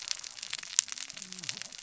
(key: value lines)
label: biophony, cascading saw
recorder: SoundTrap 600 or HydroMoth